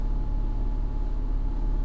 {"label": "anthrophony, boat engine", "recorder": "SoundTrap 300"}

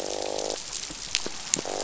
{"label": "biophony, croak", "recorder": "SoundTrap 500"}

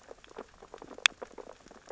{"label": "biophony, sea urchins (Echinidae)", "recorder": "SoundTrap 600 or HydroMoth"}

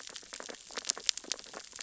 {"label": "biophony, sea urchins (Echinidae)", "recorder": "SoundTrap 600 or HydroMoth"}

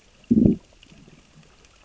{"label": "biophony, growl", "recorder": "SoundTrap 600 or HydroMoth"}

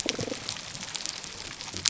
{"label": "biophony, damselfish", "recorder": "SoundTrap 300"}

